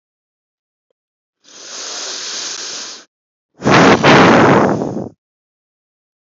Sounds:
Sigh